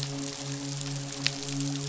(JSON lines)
{"label": "biophony, midshipman", "recorder": "SoundTrap 500"}